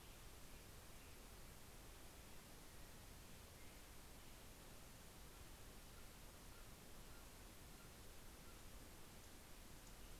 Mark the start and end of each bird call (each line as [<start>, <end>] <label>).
[4.49, 9.19] Steller's Jay (Cyanocitta stelleri)